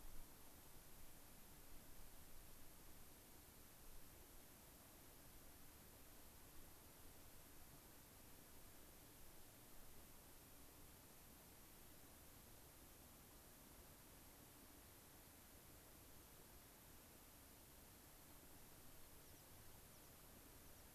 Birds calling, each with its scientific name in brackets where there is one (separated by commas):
American Pipit (Anthus rubescens)